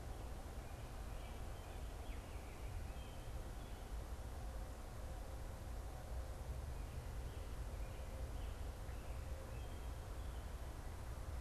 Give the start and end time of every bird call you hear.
[0.00, 10.42] American Robin (Turdus migratorius)

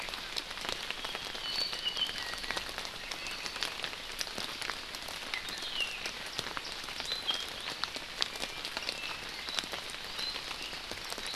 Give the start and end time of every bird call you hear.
[0.97, 2.67] Apapane (Himatione sanguinea)
[3.17, 3.77] Apapane (Himatione sanguinea)

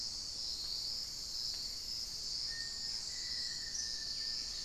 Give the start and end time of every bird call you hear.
[0.00, 4.64] Black-faced Antthrush (Formicarius analis)
[3.81, 4.64] Hauxwell's Thrush (Turdus hauxwelli)
[4.00, 4.64] unidentified bird

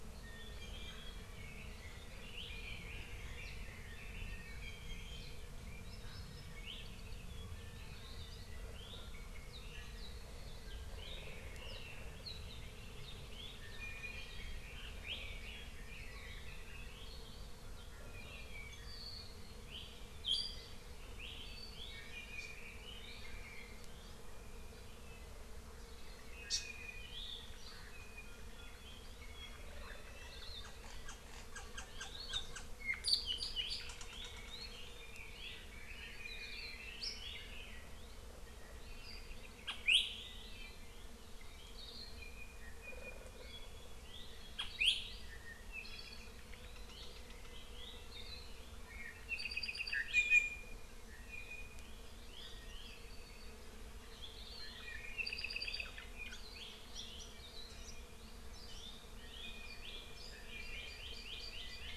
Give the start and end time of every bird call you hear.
[0.20, 1.10] Apapane (Himatione sanguinea)
[2.40, 4.60] Red-billed Leiothrix (Leiothrix lutea)
[4.60, 5.40] Apapane (Himatione sanguinea)
[5.90, 6.60] Hawaii Amakihi (Chlorodrepanis virens)
[13.60, 14.60] Apapane (Himatione sanguinea)
[14.60, 17.20] Red-billed Leiothrix (Leiothrix lutea)
[18.00, 19.20] Apapane (Himatione sanguinea)
[21.90, 23.80] Red-billed Leiothrix (Leiothrix lutea)
[26.50, 26.60] Hawaii Amakihi (Chlorodrepanis virens)
[35.00, 37.90] Apapane (Himatione sanguinea)
[39.00, 39.70] Apapane (Himatione sanguinea)
[41.70, 42.20] Hawaii Akepa (Loxops coccineus)
[42.20, 43.40] Apapane (Himatione sanguinea)
[48.10, 48.50] Hawaii Akepa (Loxops coccineus)
[49.30, 50.80] Apapane (Himatione sanguinea)
[51.10, 51.90] Apapane (Himatione sanguinea)
[52.90, 53.50] Apapane (Himatione sanguinea)
[54.60, 56.00] Apapane (Himatione sanguinea)
[59.20, 60.20] Apapane (Himatione sanguinea)
[60.50, 61.10] Apapane (Himatione sanguinea)
[60.50, 61.90] Hawaii Amakihi (Chlorodrepanis virens)

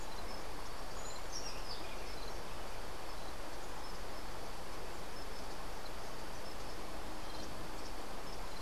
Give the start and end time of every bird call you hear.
[1.09, 1.79] Buff-throated Saltator (Saltator maximus)

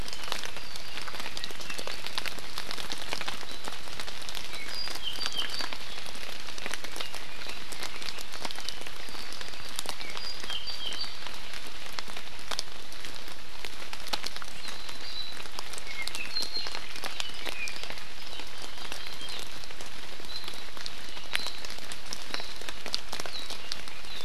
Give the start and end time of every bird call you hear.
[0.00, 2.10] Apapane (Himatione sanguinea)
[4.50, 5.80] Apapane (Himatione sanguinea)
[6.80, 8.90] Red-billed Leiothrix (Leiothrix lutea)
[10.20, 11.30] Apapane (Himatione sanguinea)
[15.00, 17.70] Apapane (Himatione sanguinea)

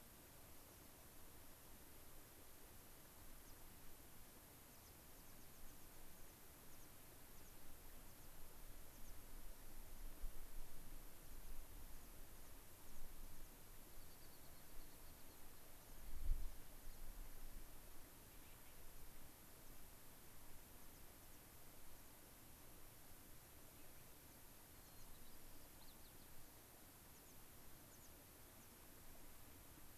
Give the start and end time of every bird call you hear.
[3.27, 3.67] American Pipit (Anthus rubescens)
[4.37, 9.47] American Pipit (Anthus rubescens)
[11.17, 16.97] American Pipit (Anthus rubescens)
[19.57, 19.77] American Pipit (Anthus rubescens)
[20.77, 21.37] American Pipit (Anthus rubescens)
[21.97, 22.17] American Pipit (Anthus rubescens)
[22.47, 22.67] American Pipit (Anthus rubescens)
[24.77, 25.07] American Pipit (Anthus rubescens)
[24.77, 26.27] White-crowned Sparrow (Zonotrichia leucophrys)
[27.07, 27.37] American Pipit (Anthus rubescens)
[27.87, 28.07] American Pipit (Anthus rubescens)
[28.57, 28.67] American Pipit (Anthus rubescens)

